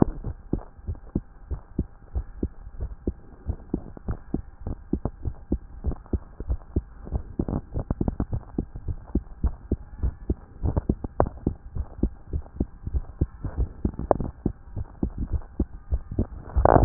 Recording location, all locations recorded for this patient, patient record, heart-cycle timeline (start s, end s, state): tricuspid valve (TV)
aortic valve (AV)+pulmonary valve (PV)+tricuspid valve (TV)+mitral valve (MV)
#Age: Child
#Sex: Female
#Height: 142.0 cm
#Weight: 39.0 kg
#Pregnancy status: False
#Murmur: Absent
#Murmur locations: nan
#Most audible location: nan
#Systolic murmur timing: nan
#Systolic murmur shape: nan
#Systolic murmur grading: nan
#Systolic murmur pitch: nan
#Systolic murmur quality: nan
#Diastolic murmur timing: nan
#Diastolic murmur shape: nan
#Diastolic murmur grading: nan
#Diastolic murmur pitch: nan
#Diastolic murmur quality: nan
#Outcome: Normal
#Campaign: 2014 screening campaign
0.00	0.24	unannotated
0.24	0.36	S1
0.36	0.52	systole
0.52	0.60	S2
0.60	0.88	diastole
0.88	0.98	S1
0.98	1.14	systole
1.14	1.22	S2
1.22	1.50	diastole
1.50	1.60	S1
1.60	1.78	systole
1.78	1.86	S2
1.86	2.14	diastole
2.14	2.26	S1
2.26	2.42	systole
2.42	2.50	S2
2.50	2.80	diastole
2.80	2.90	S1
2.90	3.06	systole
3.06	3.16	S2
3.16	3.46	diastole
3.46	3.58	S1
3.58	3.72	systole
3.72	3.82	S2
3.82	4.08	diastole
4.08	4.18	S1
4.18	4.34	systole
4.34	4.42	S2
4.42	4.66	diastole
4.66	4.76	S1
4.76	4.92	systole
4.92	5.02	S2
5.02	5.24	diastole
5.24	5.34	S1
5.34	5.50	systole
5.50	5.60	S2
5.60	5.84	diastole
5.84	5.96	S1
5.96	6.12	systole
6.12	6.20	S2
6.20	6.48	diastole
6.48	6.60	S1
6.60	6.74	systole
6.74	6.84	S2
6.84	7.12	diastole
7.12	16.85	unannotated